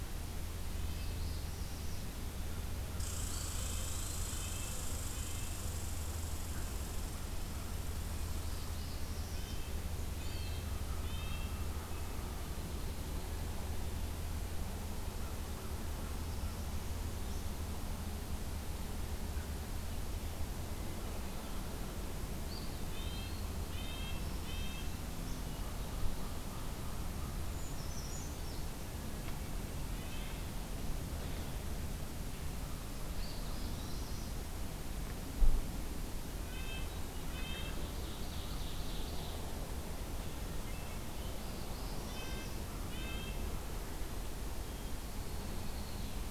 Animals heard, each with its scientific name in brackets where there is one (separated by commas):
Eastern Wood-Pewee (Contopus virens), American Crow (Corvus brachyrhynchos), Northern Parula (Setophaga americana), Hermit Thrush (Catharus guttatus), Red Squirrel (Tamiasciurus hudsonicus), Brown Creeper (Certhia americana), Red-breasted Nuthatch (Sitta canadensis), Downy Woodpecker (Dryobates pubescens), Ovenbird (Seiurus aurocapilla)